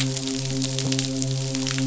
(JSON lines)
{"label": "biophony, midshipman", "recorder": "SoundTrap 500"}